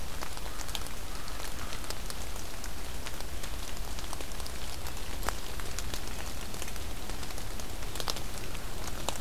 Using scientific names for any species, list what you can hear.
Corvus brachyrhynchos